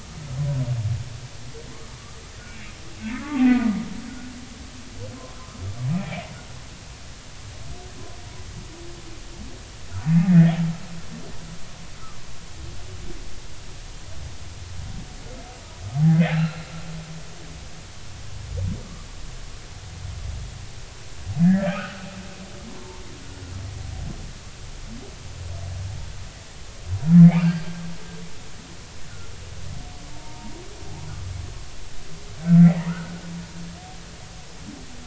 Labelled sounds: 3.0	3.7	humpback whale, 0.80 to 2.8 kHz
5.1	5.4	humpback whale, 0.99 to 1.1 kHz
5.9	6.2	humpback whale, 2.3 to 2.6 kHz
10.2	10.5	humpback whale, 1.6 to 2.2 kHz
16.3	16.6	humpback whale, 1.3 to 4.2 kHz
18.8	19.1	humpback whale, 1.1 to 1.2 kHz
21.4	22.1	humpback whale, 1.2 to 2.8 kHz
22.7	23.0	humpback whale, 0.83 to 1.1 kHz
27.2	27.5	humpback whale, 2.0 to 2.5 kHz
31.1	33.1	humpback whale, 0.80 to 2.3 kHz

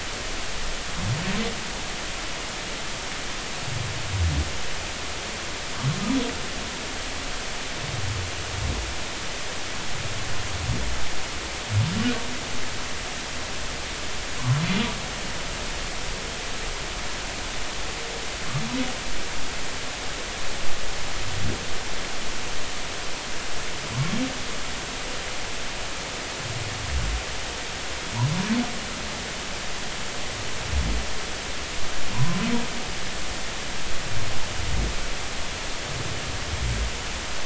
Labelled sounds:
32.1	32.4	humpback whale, 0.90 to 1.1 kHz

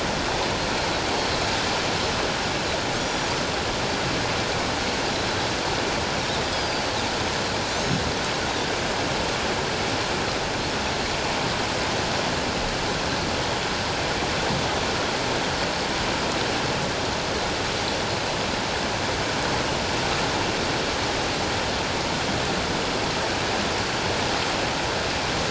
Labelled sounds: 3.0	3.3	Pacific white-sided dolphin, 5.6 to 7.1 kHz
6.5	8.0	Pacific white-sided dolphin, 4.5 to 6.7 kHz

